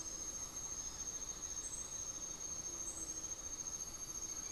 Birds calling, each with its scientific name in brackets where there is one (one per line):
unidentified bird